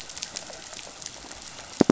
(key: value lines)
label: biophony
recorder: SoundTrap 500